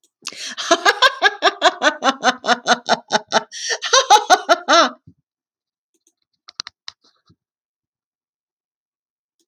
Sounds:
Laughter